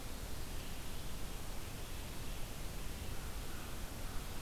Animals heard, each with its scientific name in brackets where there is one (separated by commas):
Red-eyed Vireo (Vireo olivaceus), American Crow (Corvus brachyrhynchos)